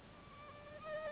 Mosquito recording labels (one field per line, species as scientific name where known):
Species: Anopheles gambiae s.s.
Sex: female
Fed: unfed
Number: one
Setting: insect culture